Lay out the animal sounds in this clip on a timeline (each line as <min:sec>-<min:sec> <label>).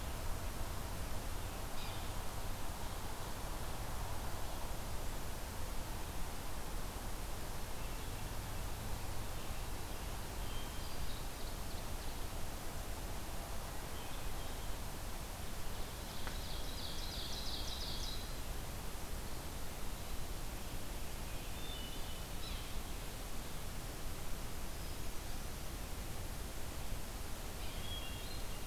0:01.6-0:02.1 Yellow-bellied Sapsucker (Sphyrapicus varius)
0:10.3-0:11.3 Hermit Thrush (Catharus guttatus)
0:10.9-0:12.3 Ovenbird (Seiurus aurocapilla)
0:13.6-0:14.9 Hermit Thrush (Catharus guttatus)
0:15.9-0:18.5 Ovenbird (Seiurus aurocapilla)
0:21.1-0:22.3 Hermit Thrush (Catharus guttatus)
0:22.3-0:22.6 Yellow-bellied Sapsucker (Sphyrapicus varius)
0:24.5-0:25.8 Hermit Thrush (Catharus guttatus)
0:27.5-0:27.8 Yellow-bellied Sapsucker (Sphyrapicus varius)
0:27.7-0:28.7 Hermit Thrush (Catharus guttatus)